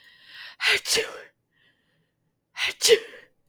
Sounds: Sneeze